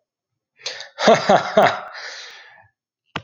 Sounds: Laughter